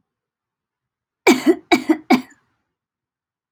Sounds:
Cough